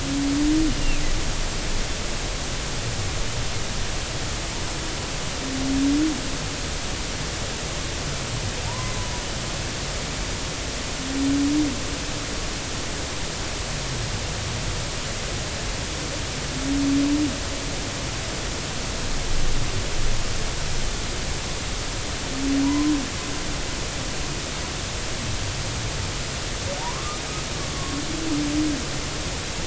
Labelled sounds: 0.8	1.0	humpback whale, 2.4 to 2.9 kHz
8.7	9.0	humpback whale, 0.86 to 1.2 kHz
22.6	22.9	humpback whale, 0.90 to 1.1 kHz
26.8	27.2	humpback whale, 0.80 to 1.3 kHz

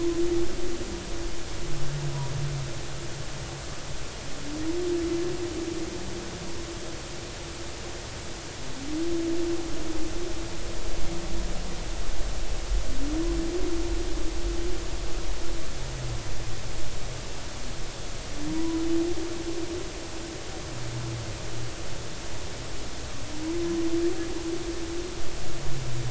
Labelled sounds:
18.5	18.8	humpback whale, 0.93 to 1.1 kHz

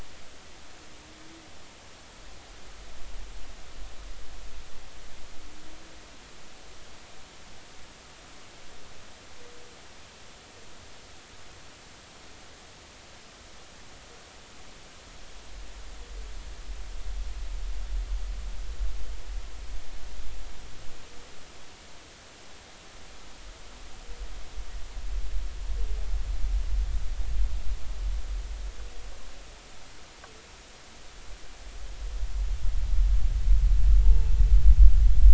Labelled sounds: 34.0	34.3	humpback whale, 0.83 to 0.96 kHz

